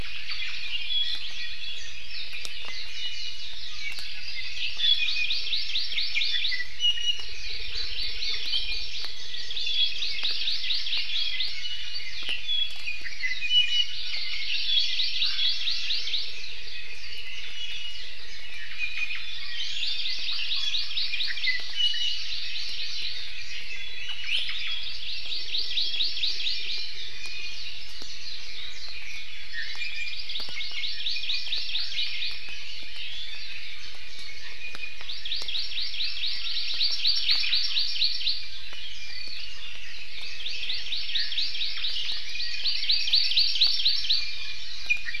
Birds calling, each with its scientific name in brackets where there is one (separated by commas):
Red-billed Leiothrix (Leiothrix lutea), Hawaii Creeper (Loxops mana), Iiwi (Drepanis coccinea), Apapane (Himatione sanguinea), Hawaii Amakihi (Chlorodrepanis virens), Omao (Myadestes obscurus), Warbling White-eye (Zosterops japonicus)